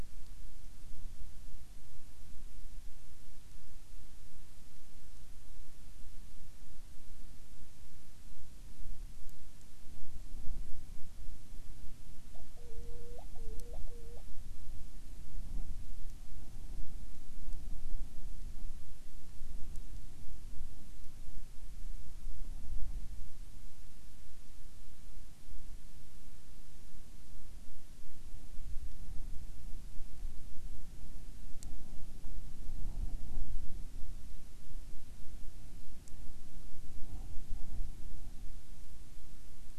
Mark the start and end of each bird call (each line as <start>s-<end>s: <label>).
12.3s-14.2s: Hawaiian Petrel (Pterodroma sandwichensis)